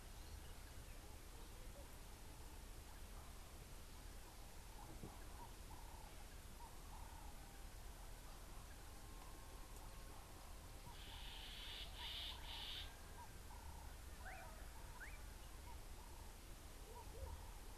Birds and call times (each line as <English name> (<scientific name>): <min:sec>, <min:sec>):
Sulphur-breasted Bushshrike (Telophorus sulfureopectus): 0:12.1
Ring-necked Dove (Streptopelia capicola): 0:13.7